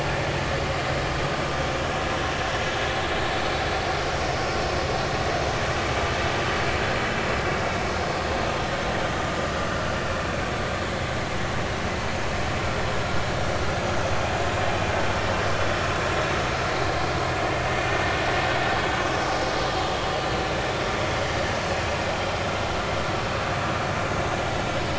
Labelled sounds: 17.7	18.0	vessel noise, 5.9 to 6.1 kHz

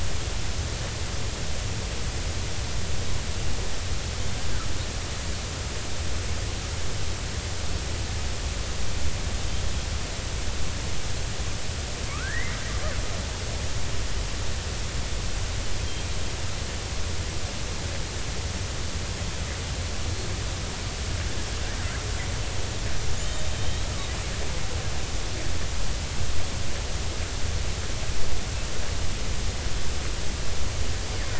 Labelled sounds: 12.1	12.6	killer whale, Bigg's (transient), 1.0 to 2.2 kHz
23.2	23.5	killer whale, Bigg's (transient), 3.6 to 3.8 kHz

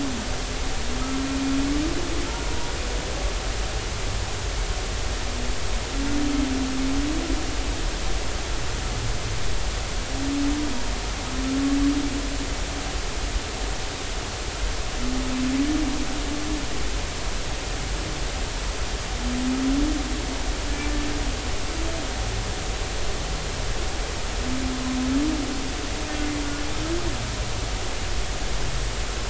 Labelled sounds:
2.2	2.5	humpback whale, 1.2 to 1.5 kHz

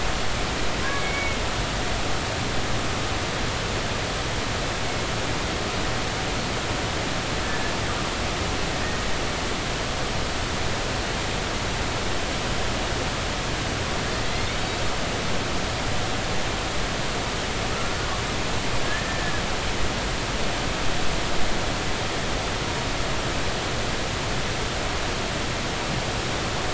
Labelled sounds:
0.9	1.4	killer whale, Bigg's (transient), 2.1 to 2.3 kHz
7.4	7.7	killer whale, Bigg's (transient), 1.7 to 1.8 kHz
14.2	14.5	killer whale, Bigg's (transient), 1.9 to 2.2 kHz
18.8	19.3	killer whale, Bigg's (transient), 1.6 to 1.9 kHz

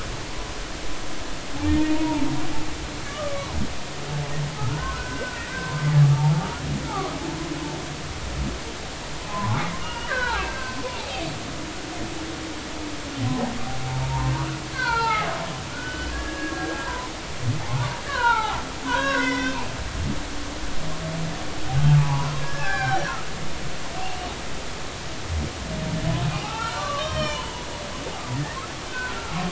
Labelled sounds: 1.9	2.3	humpback whale, 0.83 to 0.99 kHz
3.1	3.6	humpback whale, 0.93 to 1.3 kHz
4.6	7.1	humpback whale, 0.80 to 2.1 kHz
9.3	11.1	humpback whale, 0.80 to 4.7 kHz
13.9	15.3	humpback whale, 0.80 to 4.7 kHz
15.7	17.1	humpback whale, 0.93 to 3.0 kHz
17.6	19.7	humpback whale, 0.80 to 5.7 kHz
22.0	23.3	humpback whale, 0.80 to 4.0 kHz
26.4	27.6	humpback whale, 0.80 to 5.7 kHz
28.9	29.3	humpback whale, 1.2 to 1.6 kHz

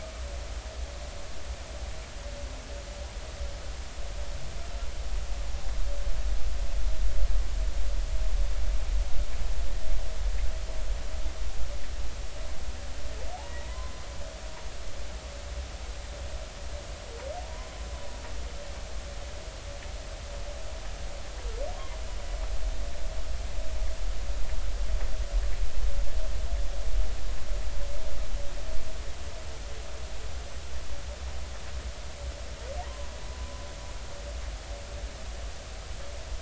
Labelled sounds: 13.3	14.0	humpback whale, 0.80 to 1.1 kHz
17.4	17.7	humpback whale, 0.86 to 1.1 kHz
33.8	34.1	humpback whale, 0.86 to 1.1 kHz

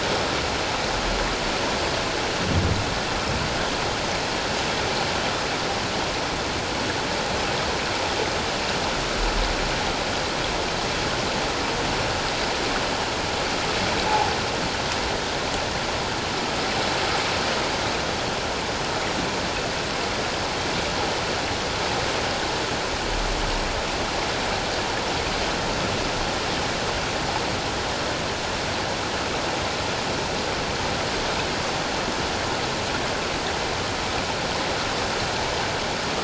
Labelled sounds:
14.1	14.3	humpback whale, 0.78 to 0.94 kHz

